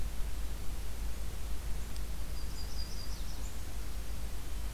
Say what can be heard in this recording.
Yellow-rumped Warbler